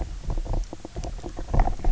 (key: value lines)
label: biophony, knock croak
recorder: SoundTrap 300